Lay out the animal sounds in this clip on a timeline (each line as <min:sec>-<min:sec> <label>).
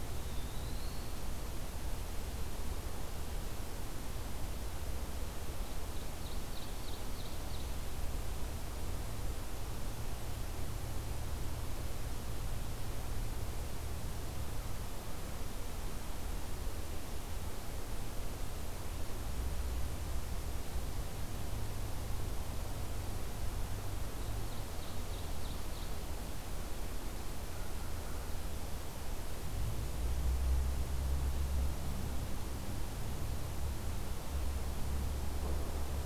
0:00.0-0:01.4 Eastern Wood-Pewee (Contopus virens)
0:05.1-0:07.7 Ovenbird (Seiurus aurocapilla)
0:23.6-0:26.2 Ovenbird (Seiurus aurocapilla)